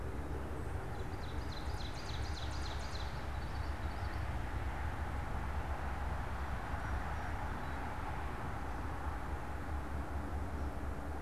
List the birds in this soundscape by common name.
Ovenbird, Common Yellowthroat, Black-capped Chickadee